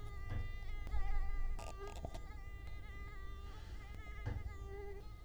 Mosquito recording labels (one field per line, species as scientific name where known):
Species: Culex quinquefasciatus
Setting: cup